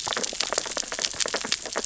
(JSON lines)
{"label": "biophony, sea urchins (Echinidae)", "recorder": "SoundTrap 600 or HydroMoth"}